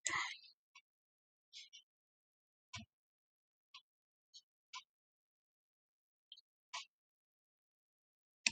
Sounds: Laughter